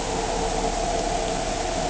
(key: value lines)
label: anthrophony, boat engine
recorder: HydroMoth